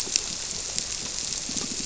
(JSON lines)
{"label": "biophony, squirrelfish (Holocentrus)", "recorder": "SoundTrap 300"}